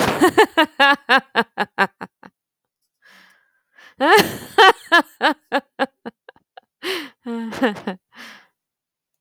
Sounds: Laughter